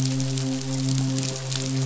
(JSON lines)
{"label": "biophony, midshipman", "recorder": "SoundTrap 500"}